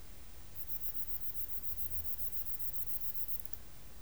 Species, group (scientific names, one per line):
Parnassiana tymphrestos
Orthoptera